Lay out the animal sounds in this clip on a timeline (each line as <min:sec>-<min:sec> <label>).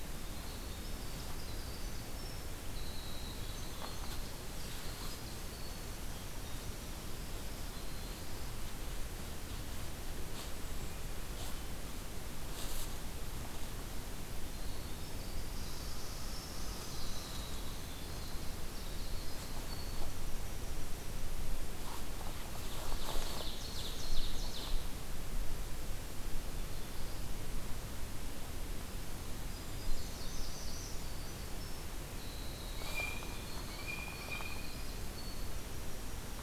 0:00.0-0:05.9 Winter Wren (Troglodytes hiemalis)
0:14.3-0:20.1 Winter Wren (Troglodytes hiemalis)
0:15.4-0:17.4 Red Squirrel (Tamiasciurus hudsonicus)
0:22.4-0:25.2 Ovenbird (Seiurus aurocapilla)
0:29.8-0:31.1 Northern Parula (Setophaga americana)
0:31.9-0:36.4 Winter Wren (Troglodytes hiemalis)
0:32.7-0:34.9 Blue Jay (Cyanocitta cristata)